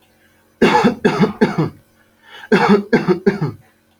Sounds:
Cough